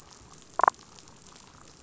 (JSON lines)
{"label": "biophony, damselfish", "recorder": "SoundTrap 500"}